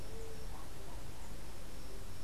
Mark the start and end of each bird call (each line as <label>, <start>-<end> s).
White-tipped Dove (Leptotila verreauxi), 0.0-2.2 s